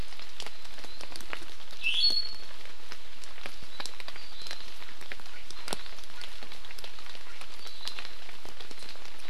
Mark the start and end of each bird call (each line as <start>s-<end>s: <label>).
1.8s-2.6s: Iiwi (Drepanis coccinea)
4.2s-4.7s: Hawaii Amakihi (Chlorodrepanis virens)
7.6s-8.0s: Hawaii Amakihi (Chlorodrepanis virens)